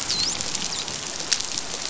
{"label": "biophony, dolphin", "recorder": "SoundTrap 500"}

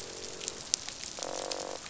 {"label": "biophony, croak", "recorder": "SoundTrap 500"}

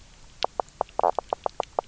{"label": "biophony, knock croak", "recorder": "SoundTrap 300"}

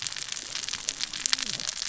{"label": "biophony, cascading saw", "recorder": "SoundTrap 600 or HydroMoth"}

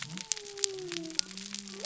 {"label": "biophony", "recorder": "SoundTrap 300"}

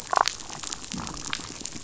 {"label": "biophony, damselfish", "recorder": "SoundTrap 500"}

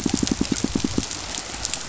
{"label": "biophony, pulse", "recorder": "SoundTrap 500"}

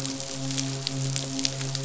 {"label": "biophony, midshipman", "recorder": "SoundTrap 500"}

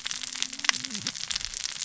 {"label": "biophony, cascading saw", "recorder": "SoundTrap 600 or HydroMoth"}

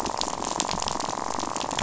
{"label": "biophony, rattle", "recorder": "SoundTrap 500"}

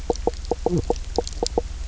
{"label": "biophony, knock croak", "recorder": "SoundTrap 300"}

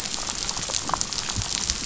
{"label": "biophony", "recorder": "SoundTrap 500"}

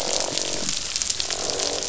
{"label": "biophony, croak", "recorder": "SoundTrap 500"}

